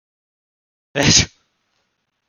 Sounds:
Sneeze